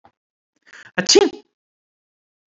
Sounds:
Sneeze